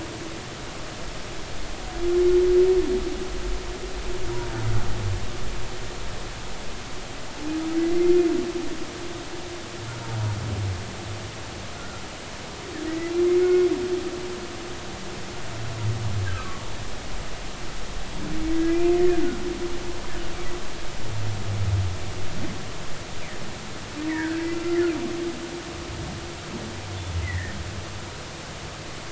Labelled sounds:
7.7	8.2	humpback whale, 2.0 to 2.2 kHz
11.8	13.1	humpback whale, 1.3 to 2.1 kHz
13.4	13.7	humpback whale, 1.4 to 2.2 kHz
16.3	16.6	humpback whale, 1.1 to 1.4 kHz
18.5	18.8	humpback whale, 1.95 to 2.05 kHz
24.1	24.9	humpback whale, 1.3 to 2.1 kHz
27.2	27.5	humpback whale, 1.7 to 2.2 kHz

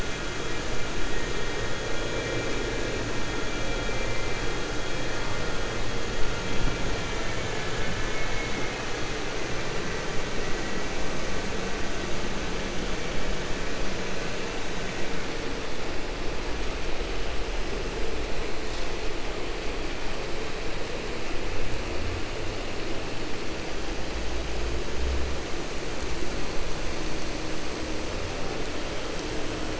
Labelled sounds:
7.6	8.8	vessel noise, 1.1 to 3.5 kHz

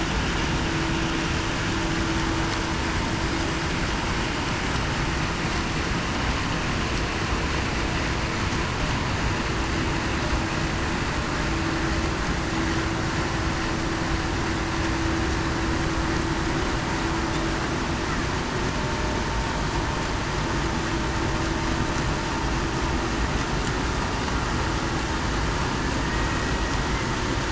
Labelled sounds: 26.0	26.4	killer whale, Bigg's (transient), 1.8 to 1.9 kHz

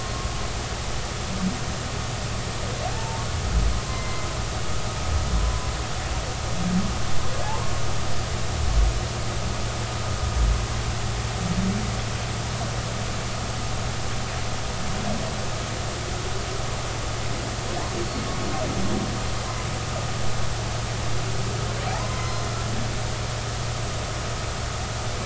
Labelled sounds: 2.9	3.2	humpback whale, 0.83 to 0.96 kHz
3.9	4.3	humpback whale, 2.0 to 2.1 kHz
5.4	5.7	humpback whale, 0.96 to 1.1 kHz
18.0	18.3	humpback whale, 4.3 to 4.5 kHz
22.0	22.5	humpback whale, 2.0 to 4.2 kHz
22.8	23.4	humpback whale, 0.80 to 1.1 kHz

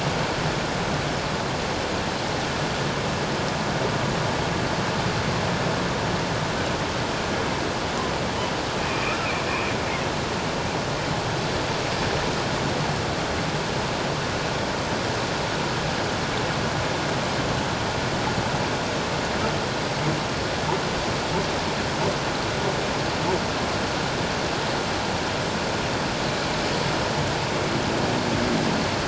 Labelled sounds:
8.8	9.2	humpback whale, 2.3 to 2.6 kHz

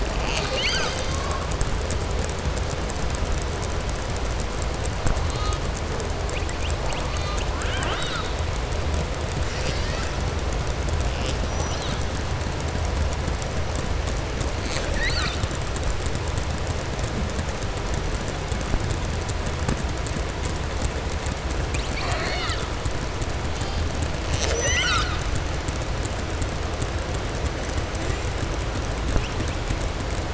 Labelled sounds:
21.6	22.6	killer whale, southern resident, 0.65 to 4.9 kHz
24.2	25.2	killer whale, southern resident, 0.58 to 7.8 kHz

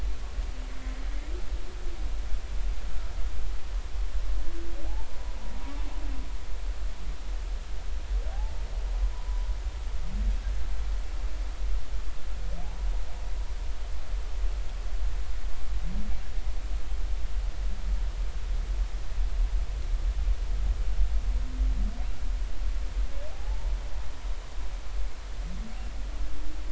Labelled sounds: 5.1	5.4	humpback whale, 0.93 to 1.0 kHz
8.3	9.5	humpback whale, 0.80 to 1.1 kHz
23.3	23.7	humpback whale, 0.80 to 1.0 kHz

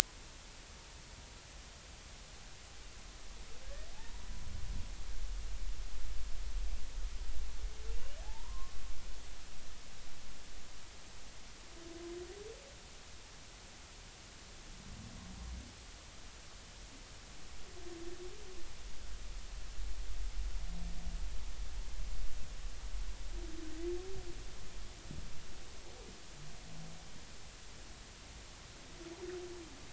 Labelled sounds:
3.9	4.3	humpback whale, 0.80 to 0.99 kHz
8.2	8.7	humpback whale, 0.80 to 1.1 kHz

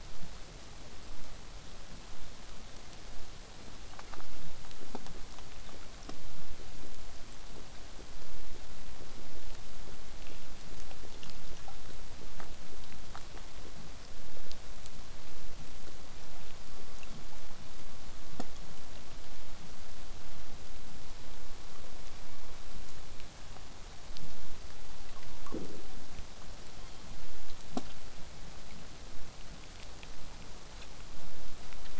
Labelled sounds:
13.0	13.5	killer whale, southern resident, 3.1 to 3.5 kHz
26.7	27.1	killer whale, southern resident, 2.9 to 3.4 kHz

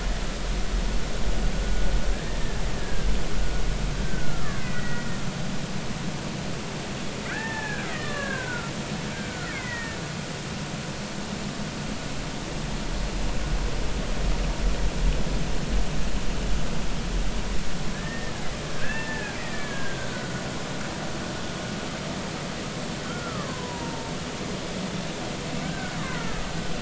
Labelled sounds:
2.8	3.1	killer whale, Bigg's (transient), 1.5 to 1.7 kHz
4.0	5.1	killer whale, Bigg's (transient), 1.1 to 2.2 kHz
7.3	8.7	killer whale, Bigg's (transient), 0.80 to 2.1 kHz
9.1	10.0	killer whale, Bigg's (transient), 1.3 to 2.4 kHz
17.9	18.4	killer whale, Bigg's (transient), 1.6 to 1.9 kHz
18.7	20.4	killer whale, Bigg's (transient), 0.83 to 2.4 kHz
23.0	24.1	killer whale, Bigg's (transient), 0.86 to 1.5 kHz
25.6	26.4	killer whale, Bigg's (transient), 1.3 to 2.2 kHz

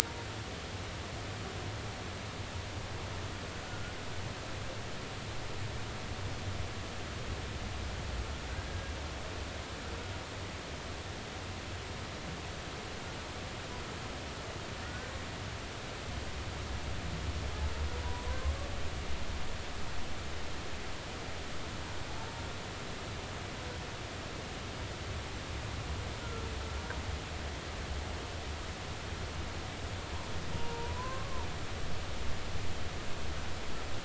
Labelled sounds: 3.7	3.9	humpback whale, 1.4 to 1.5 kHz
8.7	9.0	humpback whale, 1.6 to 1.8 kHz
14.8	15.1	humpback whale, 1.4 to 1.6 kHz
26.2	26.5	humpback whale, 1.3 to 1.5 kHz
30.5	31.5	humpback whale, 0.90 to 1.2 kHz

